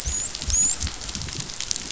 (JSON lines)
{"label": "biophony, dolphin", "recorder": "SoundTrap 500"}